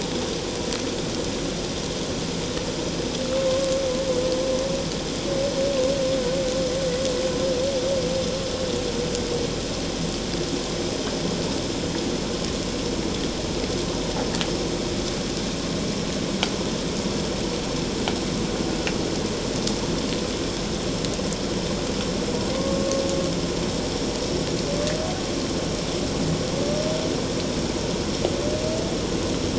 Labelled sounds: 22.5	22.9	humpback whale, 1.0 to 1.2 kHz

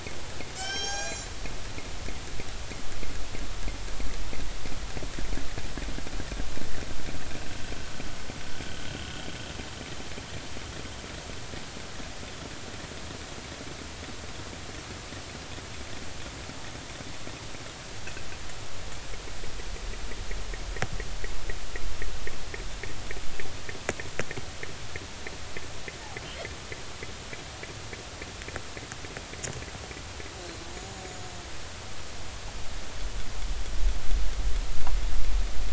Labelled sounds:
0.5	1.3	killer whale, northern resident, G clan, call N24ii, 0.80 to 8.0 kHz
30.7	31.0	killer whale, northern resident, 6.7 to 6.9 kHz

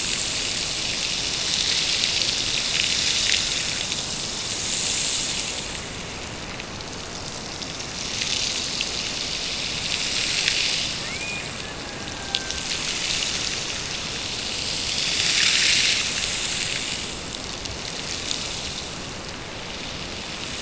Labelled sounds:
11.0	12.8	killer whale, Bigg's (transient), Gulf of Alaska transient, 0.54 to 2.6 kHz

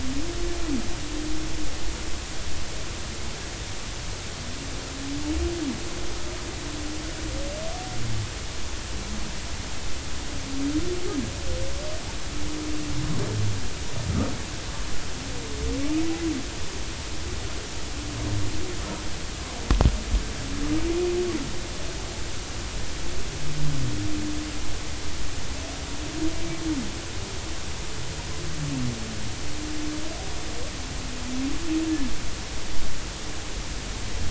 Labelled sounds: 31.8	32.1	humpback whale, 1.6 to 1.8 kHz

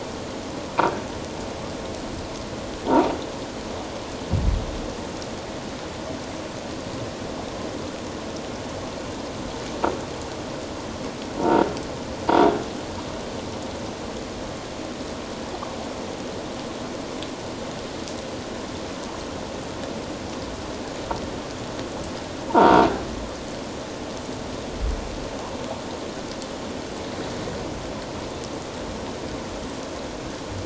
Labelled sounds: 11.4	11.6	croaking sound likely from a nearby submerged object, 0.88 to 0.97 kHz
22.5	22.9	croaking sound likely from a nearby submerged object, 0.84 to 1.0 kHz

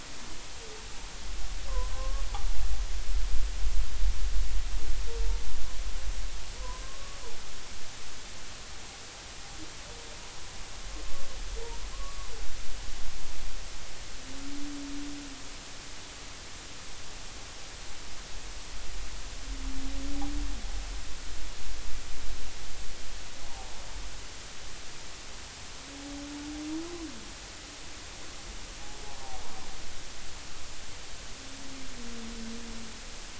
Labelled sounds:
1.9	2.2	humpback whale, 0.99 to 1.2 kHz
6.6	6.8	humpback whale, 0.93 to 1.1 kHz
11.9	12.3	humpback whale, 0.99 to 1.2 kHz
23.5	23.8	humpback whale, 0.80 to 0.99 kHz

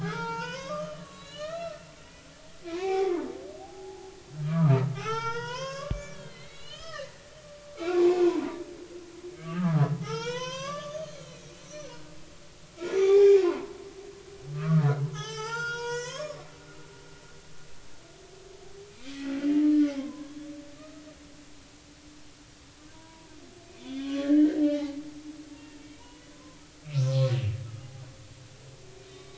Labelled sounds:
0.0	4.1	humpback whale, 0.80 to 6.0 kHz
4.4	7.2	humpback whale, 0.80 to 7.3 kHz
7.8	8.6	humpback whale, 0.80 to 1.5 kHz
9.4	11.0	humpback whale, 0.80 to 6.6 kHz
11.4	11.9	humpback whale, 5.5 to 6.3 kHz
13.0	13.7	humpback whale, 0.80 to 3.7 kHz
14.5	14.9	humpback whale, 1.1 to 1.5 kHz
15.1	16.4	humpback whale, 0.80 to 8.0 kHz
18.8	20.4	humpback whale, 0.96 to 2.6 kHz
22.9	25.0	humpback whale, 0.80 to 3.6 kHz
25.5	27.3	humpback whale, 0.90 to 2.8 kHz
29.1	29.3	humpback whale, 1.0 to 3.8 kHz

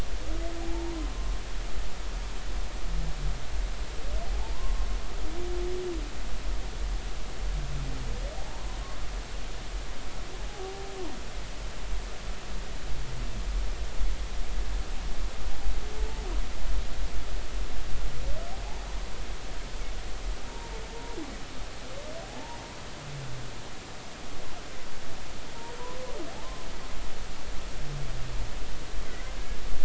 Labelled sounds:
0.6	0.9	humpback whale, 0.80 to 0.96 kHz
4.3	4.9	humpback whale, 0.80 to 1.1 kHz
8.4	8.6	humpback whale, 0.80 to 0.96 kHz
10.4	10.9	humpback whale, 0.80 to 0.86 kHz
20.5	21.2	humpback whale, 0.86 to 0.99 kHz
22.2	22.6	humpback whale, 0.80 to 0.99 kHz

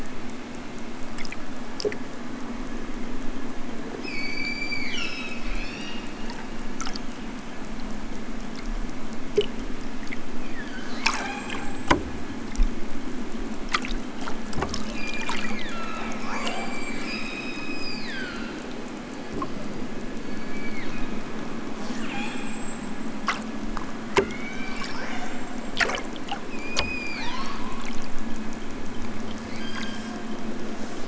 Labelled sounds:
4.1	6.1	killer whale, southern Alaska resident, 0.92 to 8.0 kHz
10.4	11.8	killer whale, southern Alaska resident, 0.32 to 5.3 kHz
14.8	18.7	killer whale, southern Alaska resident, 0.41 to 8.0 kHz
20.1	21.3	killer whale, southern Alaska resident, 0.64 to 4.8 kHz
21.7	23.3	killer whale, southern Alaska resident, 0.60 to 8.0 kHz
24.0	25.9	killer whale, southern Alaska resident, 0.41 to 8.0 kHz
26.5	27.9	killer whale, southern Alaska resident, 0.50 to 7.8 kHz
29.4	30.2	killer whale, southern Alaska resident, 1.1 to 8.0 kHz

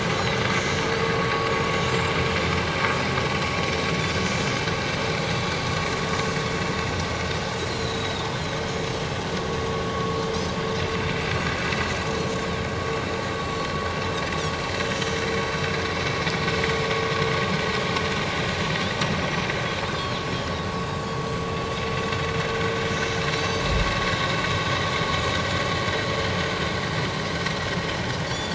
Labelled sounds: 1.9	2.1	Pacific white-sided dolphin, 7.2 to 7.5 kHz
7.7	8.3	Pacific white-sided dolphin, 3.5 to 4.2 kHz
19.3	19.7	Pacific white-sided dolphin, 5.9 to 6.3 kHz
23.4	23.7	Pacific white-sided dolphin, 4.5 to 6.3 kHz

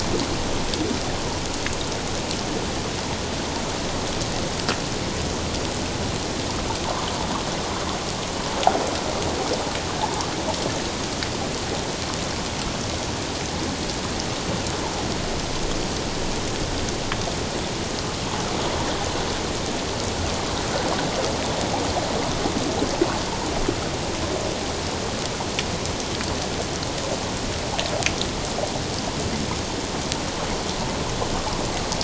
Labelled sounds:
10.0	10.3	water noise, 0.81 to 1.2 kHz

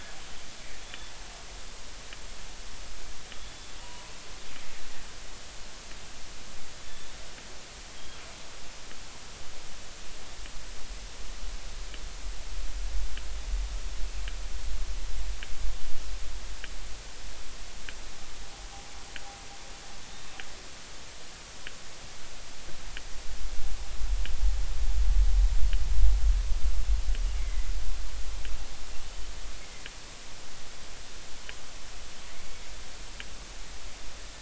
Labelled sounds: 0.8	1.1	killer whale, northern resident, G clan, GG subclan, call N28, 3.3 to 3.6 kHz
3.3	4.1	killer whale, northern resident, G clan, GG subclan, call N28, 0.90 to 3.5 kHz
27.4	27.7	killer whale, northern resident, G clan, GG subclan, call N23ii, 1.9 to 2.3 kHz
29.6	29.8	killer whale, northern resident, G clan, GG subclan, call N23ii, 2.0 to 2.3 kHz
32.4	32.6	killer whale, northern resident, G clan, GG subclan, call N23ii, 2.2 to 2.4 kHz

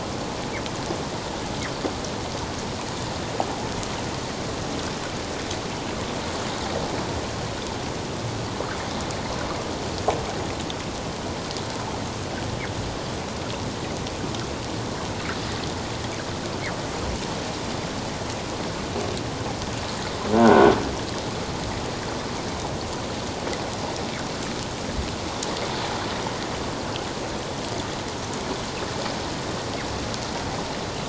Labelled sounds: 20.3	20.7	croaking sound likely from a nearby submerged object, 1.3 to 1.6 kHz

